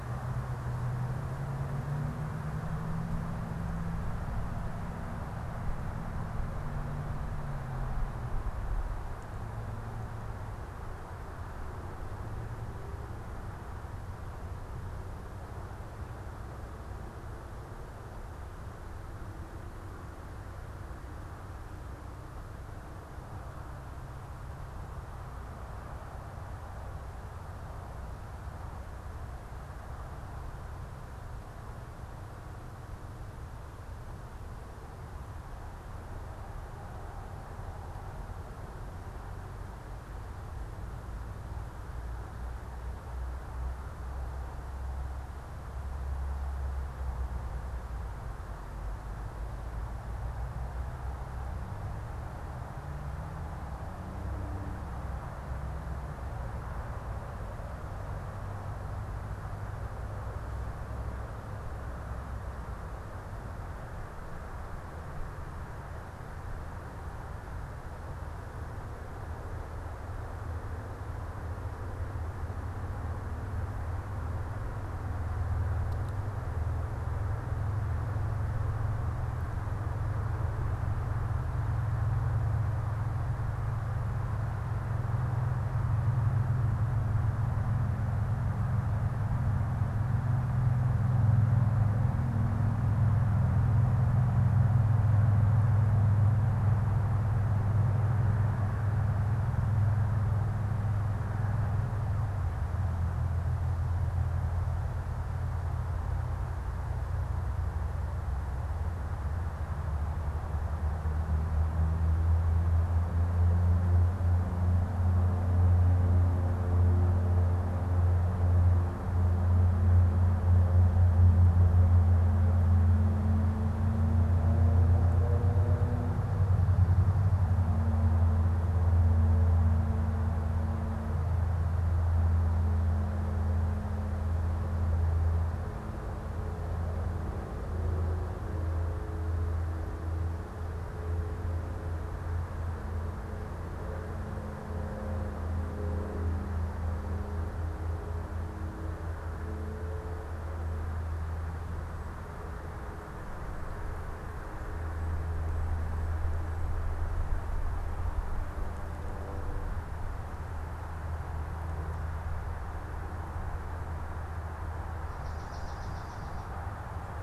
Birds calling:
Swamp Sparrow (Melospiza georgiana)

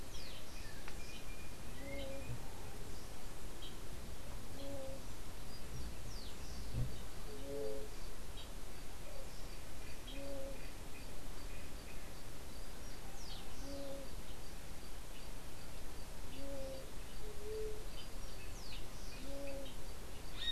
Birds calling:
unidentified bird
White-tipped Dove (Leptotila verreauxi)

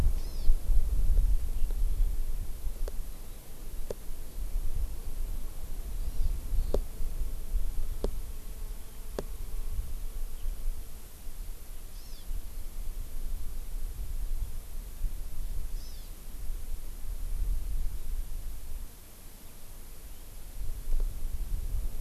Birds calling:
Hawaii Amakihi (Chlorodrepanis virens)

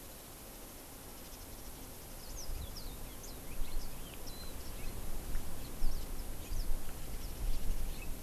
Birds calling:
Warbling White-eye (Zosterops japonicus)
Red-billed Leiothrix (Leiothrix lutea)
House Finch (Haemorhous mexicanus)

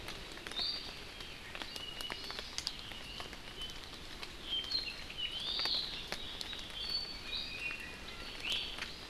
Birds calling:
Apapane (Himatione sanguinea)
Hawaii Amakihi (Chlorodrepanis virens)
Iiwi (Drepanis coccinea)

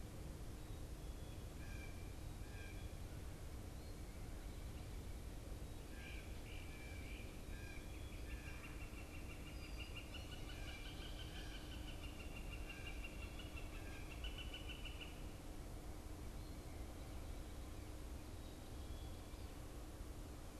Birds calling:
Northern Flicker (Colaptes auratus)
Great Crested Flycatcher (Myiarchus crinitus)
Blue Jay (Cyanocitta cristata)

